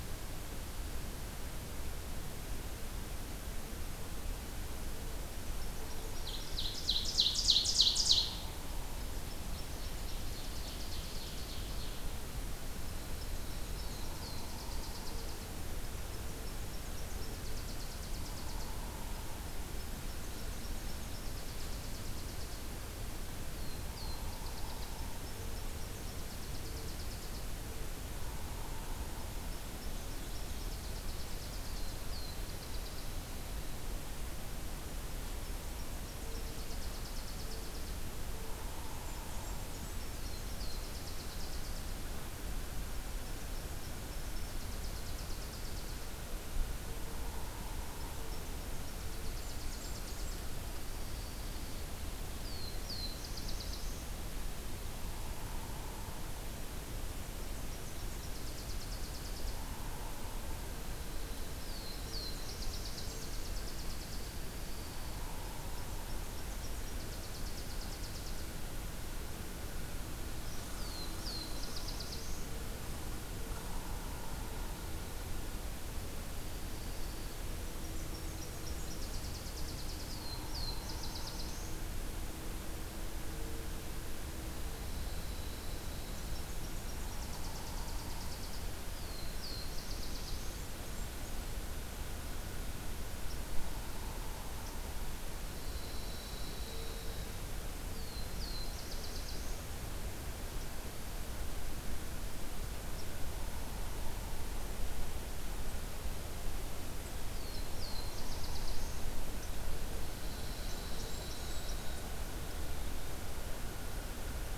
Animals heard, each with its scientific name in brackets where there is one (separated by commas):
Blackburnian Warbler (Setophaga fusca), Ovenbird (Seiurus aurocapilla), Pine Warbler (Setophaga pinus), Black-throated Blue Warbler (Setophaga caerulescens), Nashville Warbler (Leiothlypis ruficapilla)